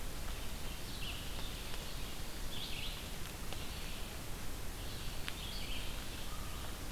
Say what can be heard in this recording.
Red-eyed Vireo, American Crow